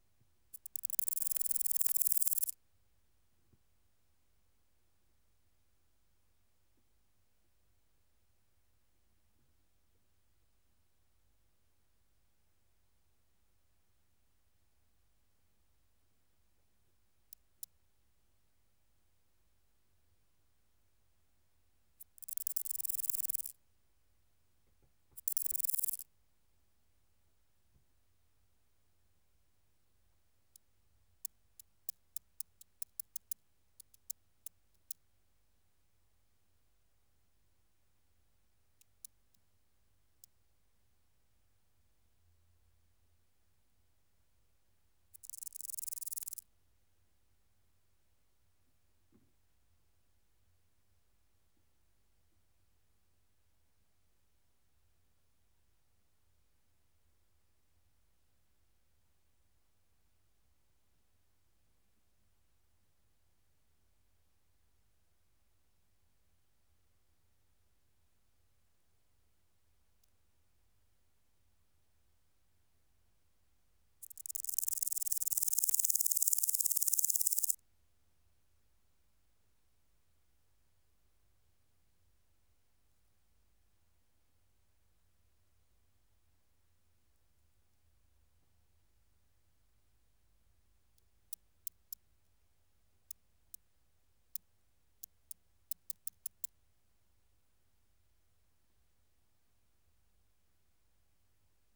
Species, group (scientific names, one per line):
Omocestus viridulus
Orthoptera